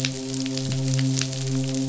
{"label": "biophony, midshipman", "recorder": "SoundTrap 500"}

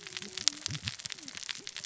{"label": "biophony, cascading saw", "recorder": "SoundTrap 600 or HydroMoth"}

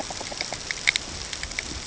{"label": "ambient", "recorder": "HydroMoth"}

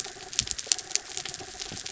{"label": "anthrophony, mechanical", "recorder": "SoundTrap 300"}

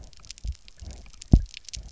{"label": "biophony, double pulse", "recorder": "SoundTrap 300"}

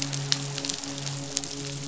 {"label": "biophony, midshipman", "recorder": "SoundTrap 500"}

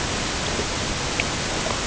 {"label": "ambient", "recorder": "HydroMoth"}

